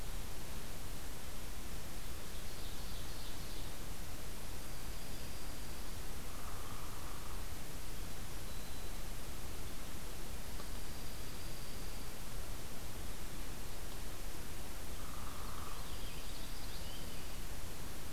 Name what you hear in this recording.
Ovenbird, Dark-eyed Junco, Northern Flicker, Black-throated Green Warbler, Purple Finch